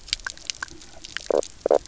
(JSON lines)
{"label": "biophony, knock croak", "recorder": "SoundTrap 300"}